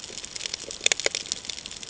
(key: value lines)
label: ambient
recorder: HydroMoth